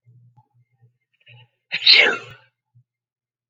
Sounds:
Sneeze